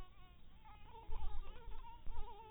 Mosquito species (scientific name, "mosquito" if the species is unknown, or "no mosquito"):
Anopheles dirus